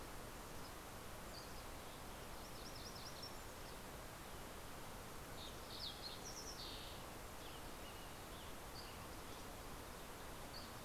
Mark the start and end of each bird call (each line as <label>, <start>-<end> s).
Dusky Flycatcher (Empidonax oberholseri), 0.6-1.8 s
MacGillivray's Warbler (Geothlypis tolmiei), 1.7-4.0 s
Fox Sparrow (Passerella iliaca), 4.2-7.3 s
Western Tanager (Piranga ludoviciana), 6.9-9.1 s
Dusky Flycatcher (Empidonax oberholseri), 8.4-10.8 s